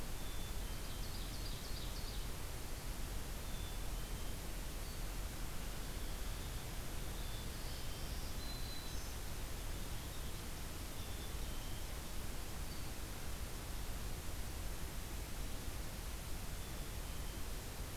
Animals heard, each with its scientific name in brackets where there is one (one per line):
Ovenbird (Seiurus aurocapilla)
Black-throated Green Warbler (Setophaga virens)
Black-capped Chickadee (Poecile atricapillus)